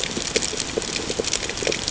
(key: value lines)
label: ambient
recorder: HydroMoth